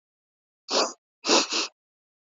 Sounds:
Sniff